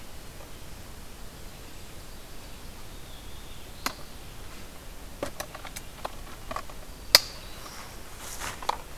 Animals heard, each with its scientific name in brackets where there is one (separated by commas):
Black-throated Blue Warbler (Setophaga caerulescens), Black-throated Green Warbler (Setophaga virens), Ovenbird (Seiurus aurocapilla)